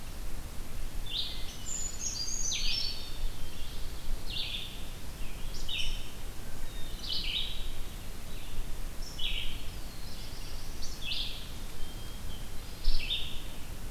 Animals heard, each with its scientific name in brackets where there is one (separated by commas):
Rose-breasted Grosbeak (Pheucticus ludovicianus), Brown Creeper (Certhia americana), Black-throated Blue Warbler (Setophaga caerulescens), Wood Thrush (Hylocichla mustelina), Black-capped Chickadee (Poecile atricapillus), Red-eyed Vireo (Vireo olivaceus)